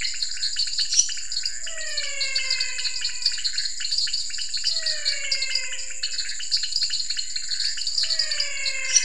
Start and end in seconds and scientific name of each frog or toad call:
0.0	9.0	Dendropsophus nanus
0.0	9.0	Leptodactylus podicipinus
0.0	9.0	Physalaemus albonotatus
0.1	9.0	Pithecopus azureus
0.6	1.5	Dendropsophus minutus